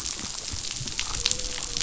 {"label": "biophony", "recorder": "SoundTrap 500"}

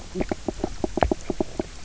{"label": "biophony, knock croak", "recorder": "SoundTrap 300"}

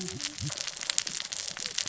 {"label": "biophony, cascading saw", "recorder": "SoundTrap 600 or HydroMoth"}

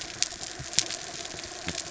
{"label": "biophony", "recorder": "SoundTrap 300"}
{"label": "anthrophony, mechanical", "recorder": "SoundTrap 300"}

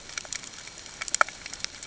{"label": "ambient", "recorder": "HydroMoth"}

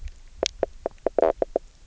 {"label": "biophony, knock croak", "recorder": "SoundTrap 300"}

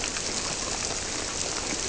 {"label": "biophony", "recorder": "SoundTrap 300"}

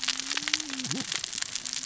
{"label": "biophony, cascading saw", "recorder": "SoundTrap 600 or HydroMoth"}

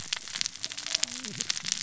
{"label": "biophony, cascading saw", "recorder": "SoundTrap 600 or HydroMoth"}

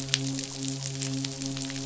{"label": "biophony, midshipman", "recorder": "SoundTrap 500"}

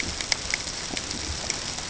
{"label": "ambient", "recorder": "HydroMoth"}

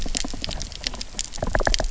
{"label": "biophony, knock", "recorder": "SoundTrap 300"}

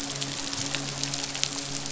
{"label": "biophony, midshipman", "recorder": "SoundTrap 500"}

